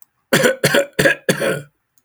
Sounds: Cough